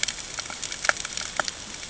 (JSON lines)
{"label": "ambient", "recorder": "HydroMoth"}